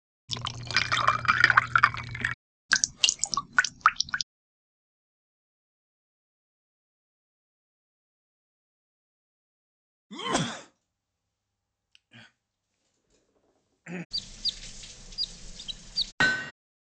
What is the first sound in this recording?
glass